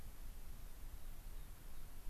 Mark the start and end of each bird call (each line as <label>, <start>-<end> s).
American Pipit (Anthus rubescens), 1.2-2.1 s